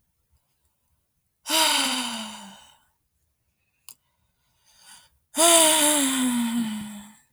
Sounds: Sigh